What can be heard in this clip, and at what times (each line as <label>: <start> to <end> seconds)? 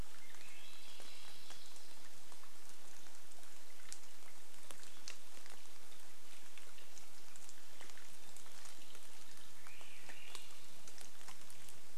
Swainson's Thrush song: 0 to 2 seconds
rain: 0 to 12 seconds
Swainson's Thrush song: 8 to 12 seconds